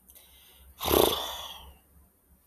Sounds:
Sigh